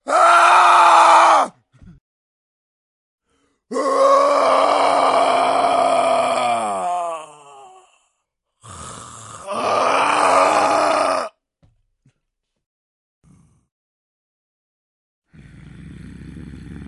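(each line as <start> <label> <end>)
0.1 A person screams loudly in pain, and the sound fades indoors. 2.0
3.2 A person screams loudly in pain, gradually increasing before fading away indoors. 8.1
8.6 A muffled human growl fading into the distance. 9.5
9.5 A loud human scream of pain gradually increases and then fades away. 11.4
11.5 Footsteps fading away indoors. 13.2
13.2 A muffled growl from a person fading indoors. 13.7
15.3 A person growling, gradually increasing in volume indoors. 16.9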